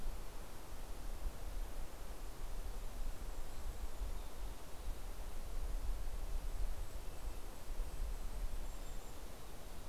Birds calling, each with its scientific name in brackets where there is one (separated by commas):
Golden-crowned Kinglet (Regulus satrapa), Mountain Chickadee (Poecile gambeli), Red-breasted Nuthatch (Sitta canadensis)